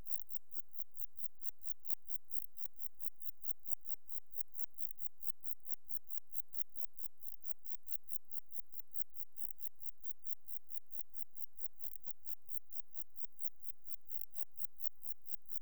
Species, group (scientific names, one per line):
Metrioptera saussuriana
Orthoptera